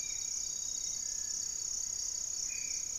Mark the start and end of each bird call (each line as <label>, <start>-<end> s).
Black-faced Antthrush (Formicarius analis), 0.0-3.0 s
Spot-winged Antshrike (Pygiptila stellaris), 0.0-3.0 s
Cinereous Tinamou (Crypturellus cinereus), 0.9-1.7 s